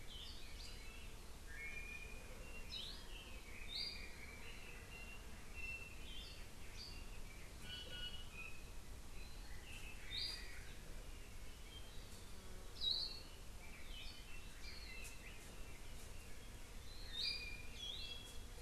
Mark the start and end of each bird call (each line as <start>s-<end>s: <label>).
1.5s-2.3s: Iiwi (Drepanis coccinea)
3.0s-4.7s: Red-billed Leiothrix (Leiothrix lutea)
4.9s-5.2s: Iiwi (Drepanis coccinea)
5.5s-6.0s: Iiwi (Drepanis coccinea)
7.6s-8.6s: Iiwi (Drepanis coccinea)
12.7s-13.3s: Hawaii Akepa (Loxops coccineus)
13.6s-15.6s: Red-billed Leiothrix (Leiothrix lutea)